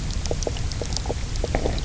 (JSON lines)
{"label": "biophony, knock croak", "recorder": "SoundTrap 300"}